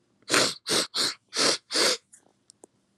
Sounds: Sniff